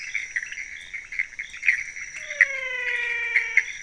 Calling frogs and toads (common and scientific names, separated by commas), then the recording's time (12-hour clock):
pointedbelly frog (Leptodactylus podicipinus), Pithecopus azureus, menwig frog (Physalaemus albonotatus)
3:45am